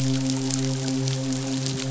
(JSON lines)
{"label": "biophony, midshipman", "recorder": "SoundTrap 500"}